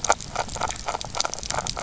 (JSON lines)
{"label": "biophony, grazing", "recorder": "SoundTrap 300"}